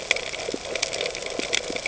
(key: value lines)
label: ambient
recorder: HydroMoth